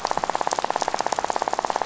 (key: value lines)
label: biophony, rattle
recorder: SoundTrap 500